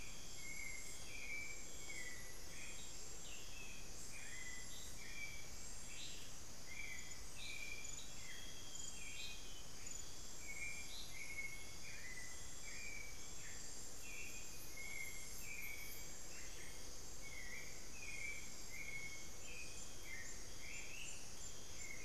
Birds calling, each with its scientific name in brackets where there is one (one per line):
Amazonian Grosbeak (Cyanoloxia rothschildii)
Solitary Black Cacique (Cacicus solitarius)
Ringed Antpipit (Corythopis torquatus)
Hauxwell's Thrush (Turdus hauxwelli)
Amazonian Barred-Woodcreeper (Dendrocolaptes certhia)
unidentified bird